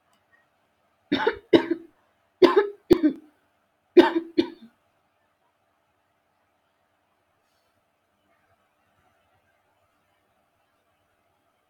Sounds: Cough